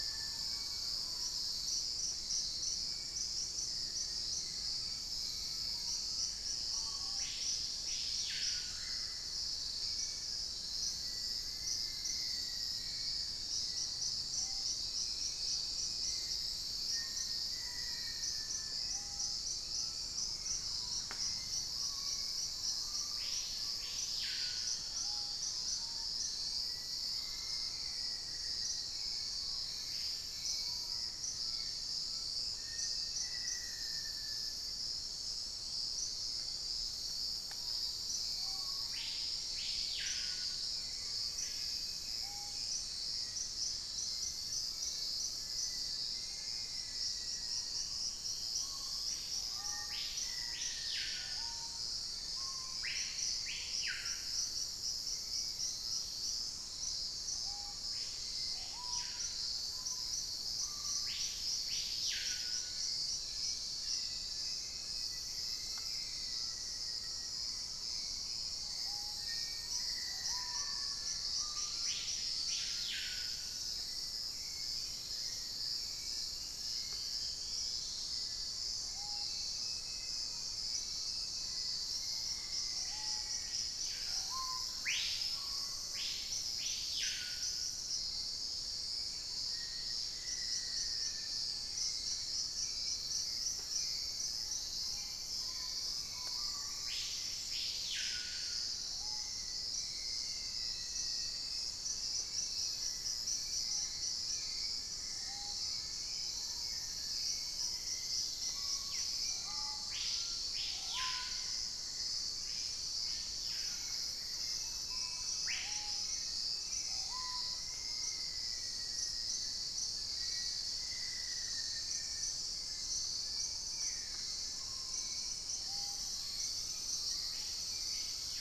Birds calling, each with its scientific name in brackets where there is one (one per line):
Dusky-capped Greenlet (Pachysylvia hypoxantha)
Cinereous Mourner (Laniocera hypopyrra)
Black-faced Antthrush (Formicarius analis)
unidentified bird
Fasciated Antshrike (Cymbilaimus lineatus)
Collared Trogon (Trogon collaris)
Dusky-throated Antshrike (Thamnomanes ardesiacus)
Thrush-like Wren (Campylorhynchus turdinus)
Mealy Parrot (Amazona farinosa)
Screaming Piha (Lipaugus vociferans)
Hauxwell's Thrush (Turdus hauxwelli)